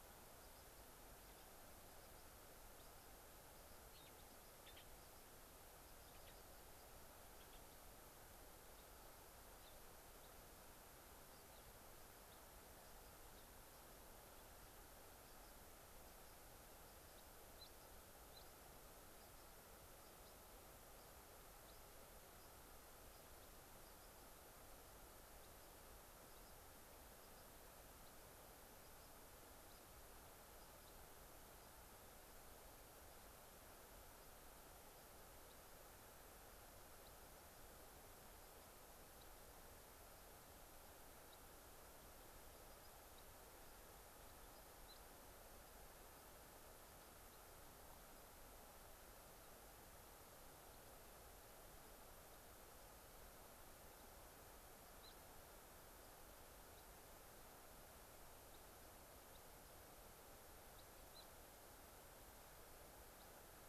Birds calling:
Gray-crowned Rosy-Finch (Leucosticte tephrocotis)
unidentified bird

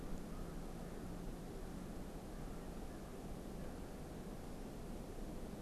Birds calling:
American Crow (Corvus brachyrhynchos)

